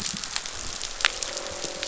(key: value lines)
label: biophony, croak
recorder: SoundTrap 500